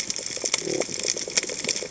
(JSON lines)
{"label": "biophony", "recorder": "HydroMoth"}